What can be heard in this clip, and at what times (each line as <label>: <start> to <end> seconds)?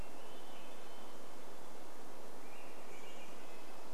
Hermit Thrush song: 0 to 2 seconds
Swainson's Thrush song: 0 to 4 seconds
Chestnut-backed Chickadee call: 2 to 4 seconds
Dark-eyed Junco song: 2 to 4 seconds
Red-breasted Nuthatch song: 2 to 4 seconds